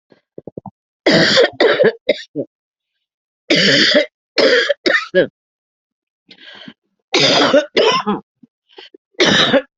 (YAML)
expert_labels:
- quality: good
  cough_type: wet
  dyspnea: false
  wheezing: false
  stridor: false
  choking: false
  congestion: false
  nothing: true
  diagnosis: lower respiratory tract infection
  severity: severe
age: 54
gender: female
respiratory_condition: false
fever_muscle_pain: true
status: healthy